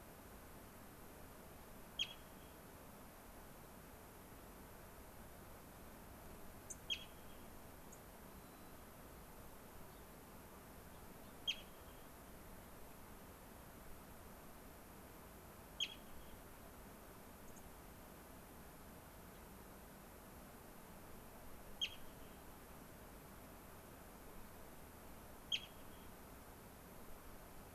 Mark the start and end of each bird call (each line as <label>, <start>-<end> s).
White-crowned Sparrow (Zonotrichia leucophrys), 8.3-8.7 s
Gray-crowned Rosy-Finch (Leucosticte tephrocotis), 9.8-10.0 s
Gray-crowned Rosy-Finch (Leucosticte tephrocotis), 10.9-11.3 s
Dark-eyed Junco (Junco hyemalis), 17.4-17.6 s
Gray-crowned Rosy-Finch (Leucosticte tephrocotis), 19.3-19.4 s